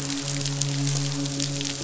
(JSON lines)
{"label": "biophony, midshipman", "recorder": "SoundTrap 500"}